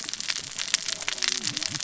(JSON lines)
{"label": "biophony, cascading saw", "recorder": "SoundTrap 600 or HydroMoth"}